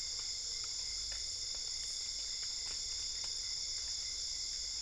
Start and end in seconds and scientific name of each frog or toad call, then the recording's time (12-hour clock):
none
2:00am